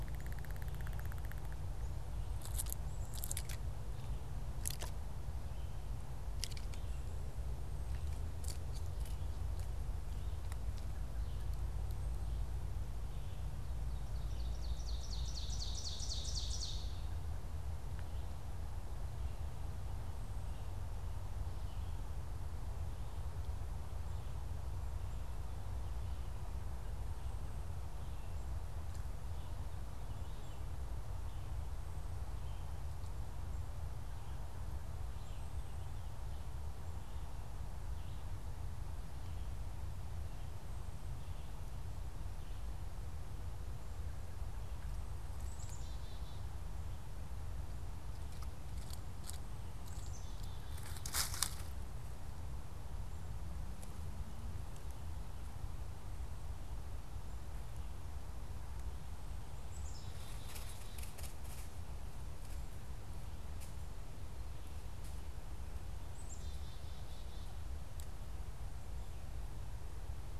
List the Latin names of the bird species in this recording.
Seiurus aurocapilla, Poecile atricapillus